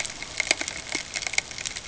{"label": "ambient", "recorder": "HydroMoth"}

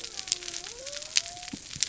{"label": "biophony", "recorder": "SoundTrap 300"}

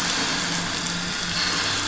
{"label": "anthrophony, boat engine", "recorder": "SoundTrap 500"}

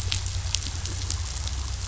{"label": "anthrophony, boat engine", "recorder": "SoundTrap 500"}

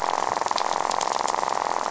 {"label": "biophony, rattle", "recorder": "SoundTrap 500"}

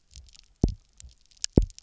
{"label": "biophony, double pulse", "recorder": "SoundTrap 300"}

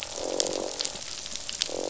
{"label": "biophony, croak", "recorder": "SoundTrap 500"}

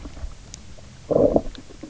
{"label": "biophony, low growl", "recorder": "SoundTrap 300"}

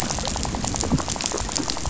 {"label": "biophony, rattle", "recorder": "SoundTrap 500"}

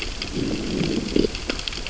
{"label": "biophony, growl", "recorder": "SoundTrap 600 or HydroMoth"}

